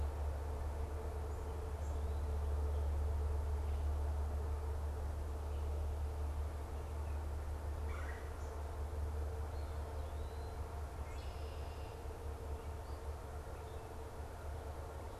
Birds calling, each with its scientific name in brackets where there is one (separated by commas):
Red-bellied Woodpecker (Melanerpes carolinus), Red-winged Blackbird (Agelaius phoeniceus)